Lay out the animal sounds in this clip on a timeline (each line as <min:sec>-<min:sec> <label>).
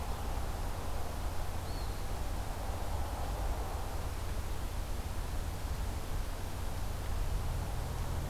0:01.6-0:02.3 Eastern Wood-Pewee (Contopus virens)